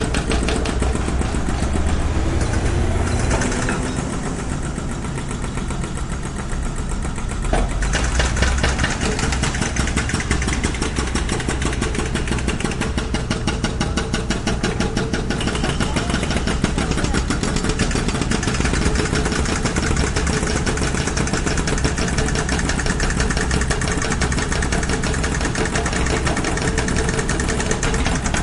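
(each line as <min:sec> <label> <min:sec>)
0:00.0 Jackhammers operate continuously on concrete, producing a rhythmic sound. 0:28.4
0:03.4 A car passes by, producing a brief whooshing sound. 0:06.9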